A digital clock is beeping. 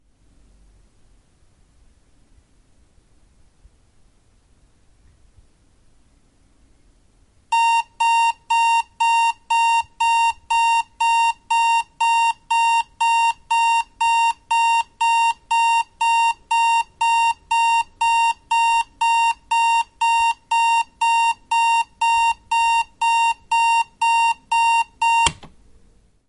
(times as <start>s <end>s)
7.5s 25.3s